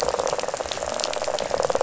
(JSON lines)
{"label": "biophony, rattle", "recorder": "SoundTrap 500"}